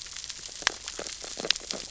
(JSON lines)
{"label": "biophony, sea urchins (Echinidae)", "recorder": "SoundTrap 600 or HydroMoth"}